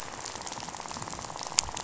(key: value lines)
label: biophony, rattle
recorder: SoundTrap 500